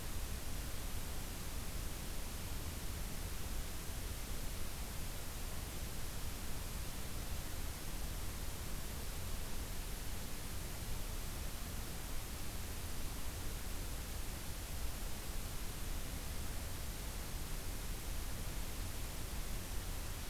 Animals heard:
forest ambience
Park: Acadia National Park